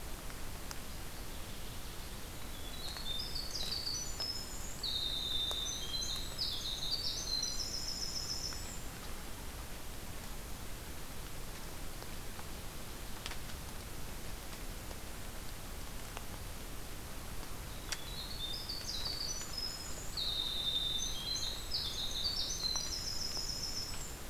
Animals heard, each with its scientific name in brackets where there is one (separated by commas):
Black-and-white Warbler (Mniotilta varia), Winter Wren (Troglodytes hiemalis)